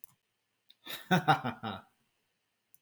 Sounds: Laughter